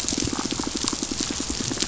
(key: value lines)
label: biophony, pulse
recorder: SoundTrap 500